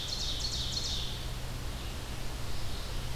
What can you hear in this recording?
Ovenbird, Red-eyed Vireo